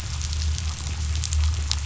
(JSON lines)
{"label": "anthrophony, boat engine", "recorder": "SoundTrap 500"}